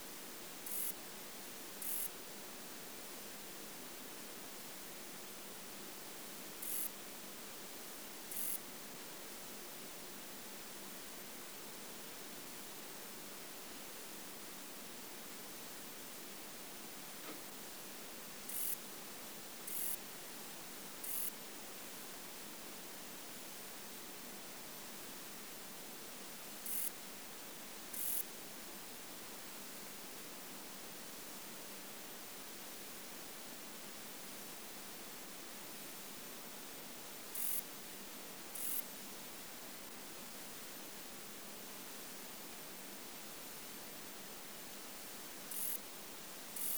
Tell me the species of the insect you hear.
Rhacocleis germanica